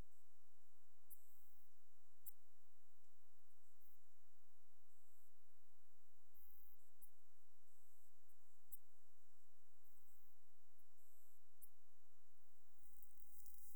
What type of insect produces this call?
orthopteran